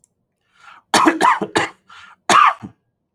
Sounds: Cough